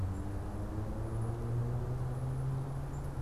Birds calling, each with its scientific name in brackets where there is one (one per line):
unidentified bird